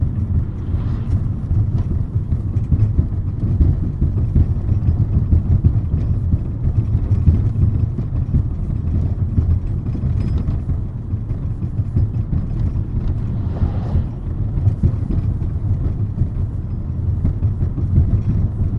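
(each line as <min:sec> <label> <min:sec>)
0:00.0 A car is being driven. 0:18.7
0:00.0 Repeated bumping noises. 0:18.8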